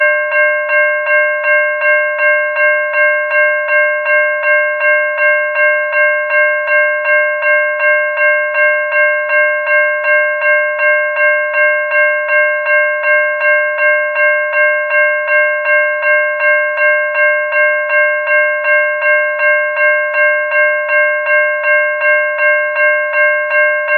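A loud, rhythmic, and repetitive bell ringing commonly heard at railroads. 0.0 - 24.0

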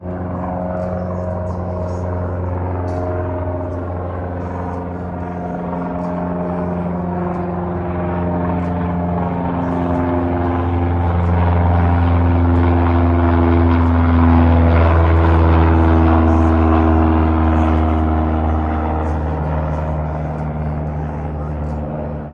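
An aircraft flies by with a loud, continuous sound. 0.0 - 22.3

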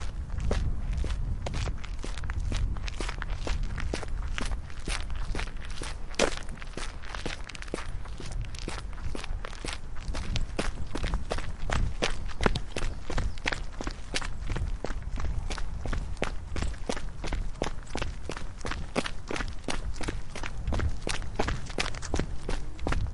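Footsteps on fine gravel. 0.0 - 10.5
Running sound on fine gravel. 10.5 - 23.1

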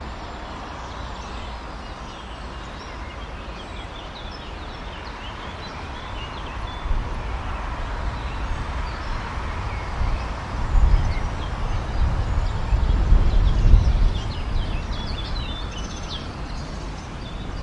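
Birds are singing a consistent high-pitched pattern outdoors. 0.0 - 17.6
Wind is blowing on a road with the distant fading sound of cars in the background. 0.0 - 17.6

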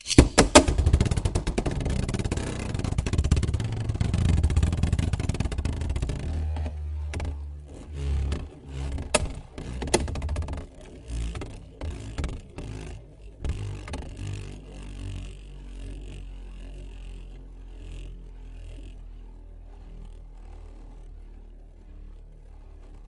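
A bike engine revs repeatedly. 0.0 - 15.5
A bike is passing nearby. 10.7 - 11.0
A bike drives away. 11.0 - 23.1

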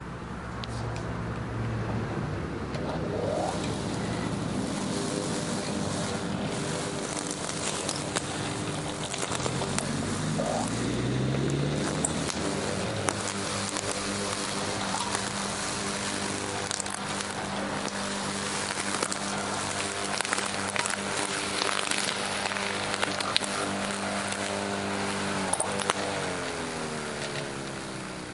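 Someone is mowing their lawn in the background. 0.0 - 28.3

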